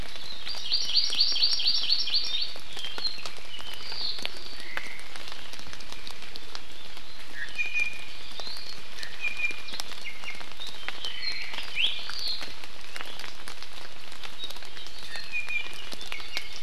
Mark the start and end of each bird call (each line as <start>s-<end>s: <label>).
0.4s-2.6s: Hawaii Amakihi (Chlorodrepanis virens)
4.5s-5.1s: Omao (Myadestes obscurus)
7.3s-9.7s: Iiwi (Drepanis coccinea)
10.0s-10.5s: Iiwi (Drepanis coccinea)
11.1s-11.6s: Omao (Myadestes obscurus)
11.7s-11.9s: Iiwi (Drepanis coccinea)
14.9s-16.6s: Iiwi (Drepanis coccinea)